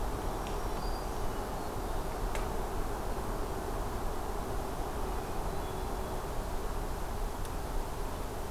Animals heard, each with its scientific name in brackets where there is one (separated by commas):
Hermit Thrush (Catharus guttatus), Black-throated Green Warbler (Setophaga virens)